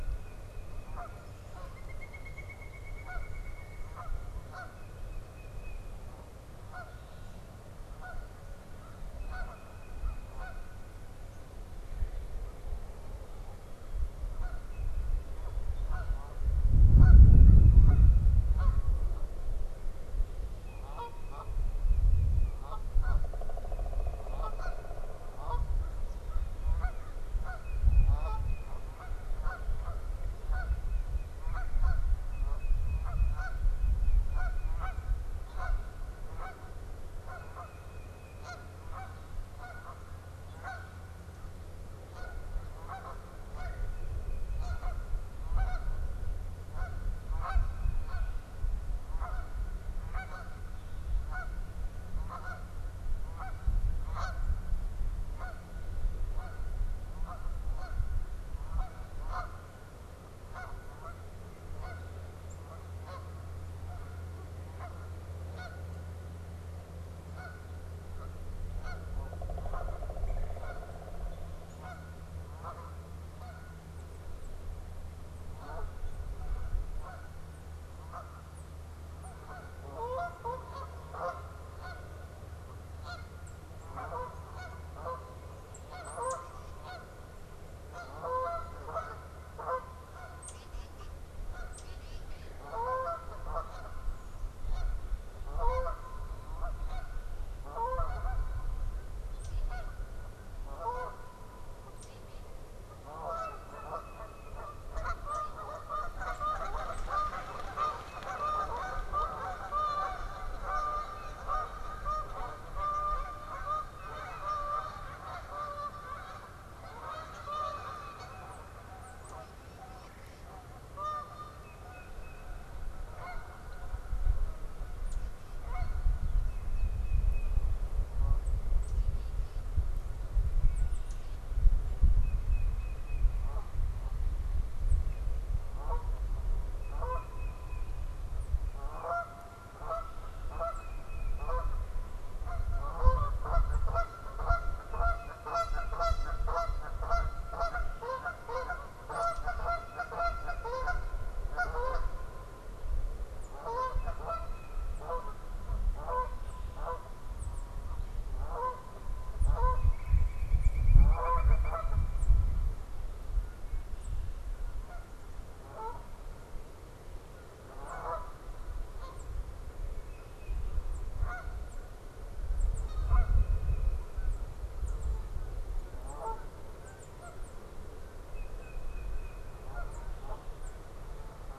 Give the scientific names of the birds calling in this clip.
Baeolophus bicolor, Branta canadensis, Dryocopus pileatus, Corvus brachyrhynchos, Melanerpes carolinus, unidentified bird